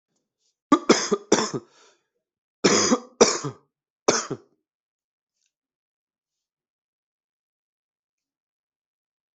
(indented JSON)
{
  "expert_labels": [
    {
      "quality": "good",
      "cough_type": "dry",
      "dyspnea": false,
      "wheezing": false,
      "stridor": false,
      "choking": false,
      "congestion": false,
      "nothing": true,
      "diagnosis": "upper respiratory tract infection",
      "severity": "mild"
    }
  ],
  "age": 38,
  "gender": "male",
  "respiratory_condition": false,
  "fever_muscle_pain": false,
  "status": "symptomatic"
}